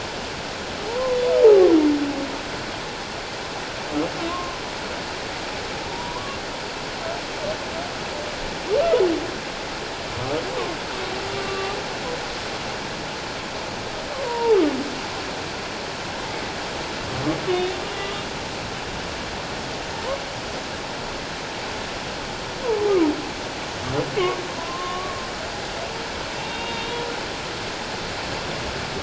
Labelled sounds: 0.9	1.2	humpback whale, 0.81 to 1.1 kHz
4.3	4.6	humpback whale, 0.97 to 1.1 kHz
5.9	6.4	humpback whale, 0.88 to 1.2 kHz
11.3	11.7	humpback whale, 1.1 to 2.8 kHz
14.2	14.6	humpback whale, 0.81 to 1.0 kHz
17.5	18.2	humpback whale, 1.1 to 3.8 kHz
22.6	23.1	humpback whale, 0.78 to 1.3 kHz
24.6	25.1	humpback whale, 0.94 to 1.2 kHz
26.3	27.0	humpback whale, 2.7 to 3.9 kHz

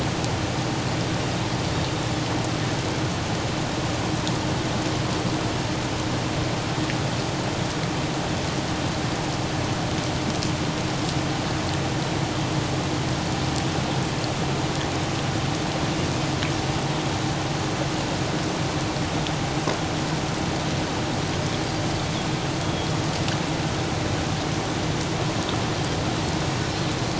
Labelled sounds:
22.6	22.9	Pacific white-sided dolphin, 3.2 to 3.4 kHz

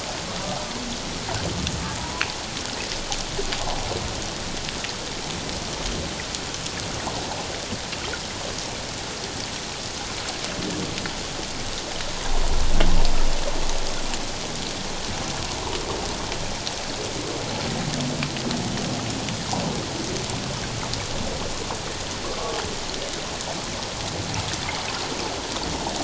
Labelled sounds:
2.0	2.2	humpback whale, 0.91 to 1.1 kHz
22.2	22.6	humpback whale, 1.0 to 1.3 kHz

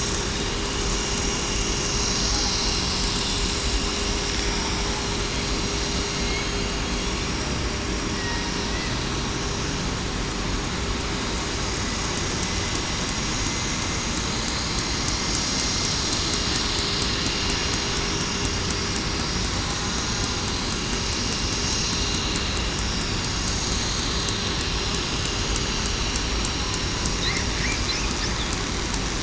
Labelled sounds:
6.8	7.1	killer whale, southern resident, 3.3 to 3.4 kHz

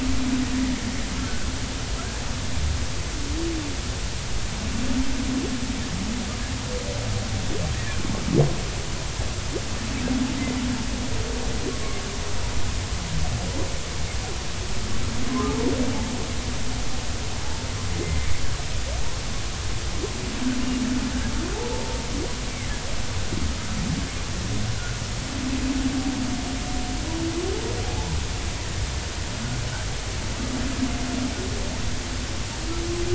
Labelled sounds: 15.3	15.6	humpback whale, 0.99 to 1.3 kHz
18.0	18.3	humpback whale, 2.0 to 2.1 kHz
21.7	22.0	humpback whale, 0.83 to 0.96 kHz
24.7	25.0	humpback whale, 1.3 to 1.6 kHz
27.8	28.1	humpback whale, 0.80 to 0.93 kHz

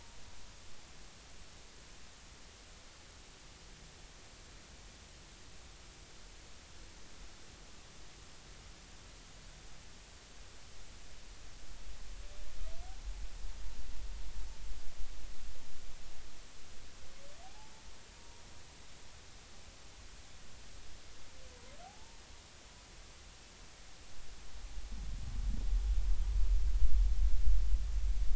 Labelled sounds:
17.4	17.7	humpback whale, 0.80 to 0.93 kHz
18.1	18.4	humpback whale, 0.90 to 0.99 kHz
21.8	22.2	humpback whale, 0.80 to 0.99 kHz

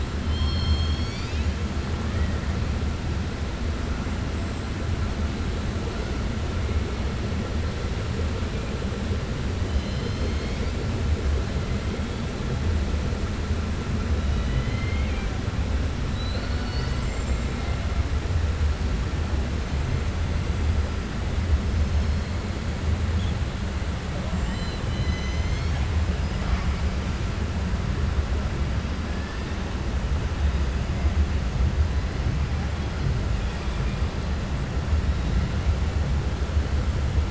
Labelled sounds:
0.2	1.5	killer whale, 2.2 to 7.4 kHz
9.7	10.8	killer whale, 2.1 to 6.5 kHz
14.2	15.3	killer whale, 1.6 to 4.2 kHz
16.0	17.5	killer whale, 1.5 to 8.0 kHz
33.4	34.0	killer whale, 1.9 to 3.9 kHz

